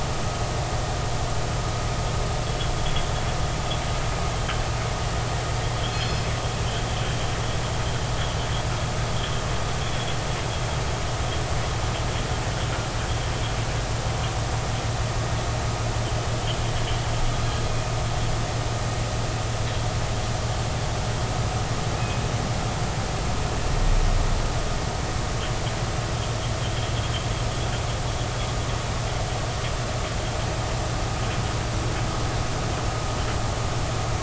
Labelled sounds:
5.7	6.3	killer whale, northern resident, G clan, call N24ii, 2.9 to 5.2 kHz
9.1	9.4	killer whale, northern resident, G clan, call N24ii, 3.0 to 3.4 kHz

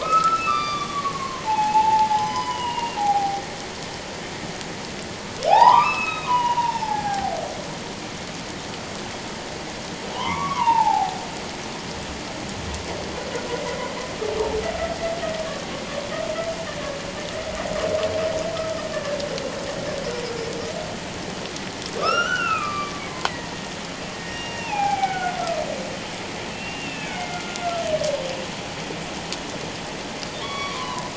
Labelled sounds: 0.0	3.4	humpback whale, 0.78 to 6.0 kHz
5.5	7.4	humpback whale, 0.78 to 5.5 kHz
10.1	11.2	humpback whale, 0.78 to 2.9 kHz
18.5	19.2	humpback whale, 1.2 to 1.8 kHz
22.0	23.3	humpback whale, 1.1 to 5.8 kHz
24.1	25.4	humpback whale, 0.78 to 5.7 kHz
26.5	27.9	humpback whale, 1.3 to 2.8 kHz
30.4	31.1	humpback whale, 0.94 to 5.8 kHz

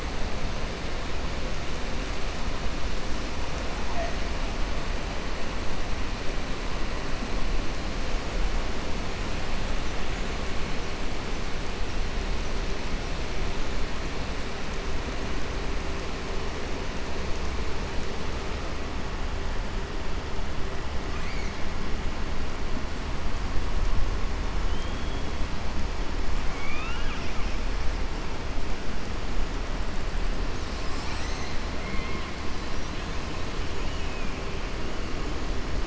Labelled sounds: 21.0	21.5	killer whale, 1.2 to 2.5 kHz
24.6	25.2	killer whale, 2.9 to 3.4 kHz
26.4	27.5	killer whale, southern resident, 1.2 to 3.8 kHz
31.7	32.3	killer whale, southern resident, 1.1 to 4.1 kHz

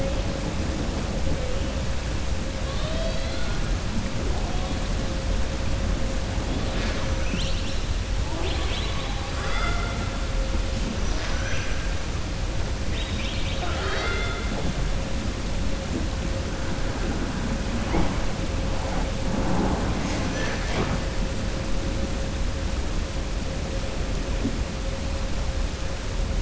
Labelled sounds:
9.2	10.0	killer whale, southern resident, 0.44 to 5.1 kHz
11.1	11.8	killer whale, southern resident, 0.68 to 3.3 kHz
12.8	14.7	killer whale, southern resident, 0.39 to 5.2 kHz

